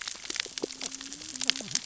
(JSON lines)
{"label": "biophony, cascading saw", "recorder": "SoundTrap 600 or HydroMoth"}